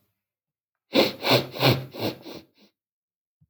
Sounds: Sniff